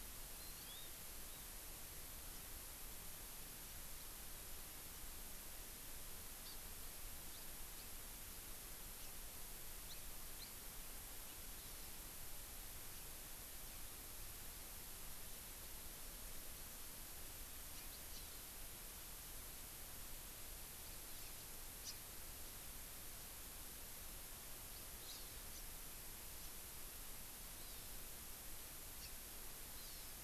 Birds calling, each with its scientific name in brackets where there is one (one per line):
Hawaii Amakihi (Chlorodrepanis virens)
House Finch (Haemorhous mexicanus)